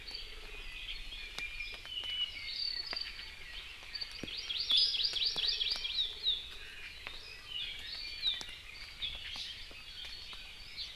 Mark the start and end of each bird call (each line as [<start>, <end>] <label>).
[1.40, 3.40] Apapane (Himatione sanguinea)
[4.10, 6.10] Hawaii Amakihi (Chlorodrepanis virens)
[4.70, 5.00] Iiwi (Drepanis coccinea)
[7.20, 8.50] Iiwi (Drepanis coccinea)